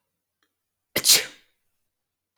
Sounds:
Sneeze